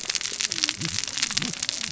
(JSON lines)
{"label": "biophony, cascading saw", "recorder": "SoundTrap 600 or HydroMoth"}